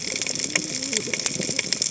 {"label": "biophony, cascading saw", "recorder": "HydroMoth"}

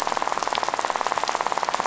{"label": "biophony, rattle", "recorder": "SoundTrap 500"}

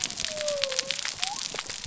{"label": "biophony", "recorder": "SoundTrap 300"}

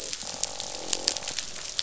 {"label": "biophony, croak", "recorder": "SoundTrap 500"}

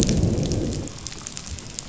{"label": "biophony, growl", "recorder": "SoundTrap 500"}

